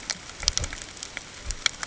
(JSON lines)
{"label": "ambient", "recorder": "HydroMoth"}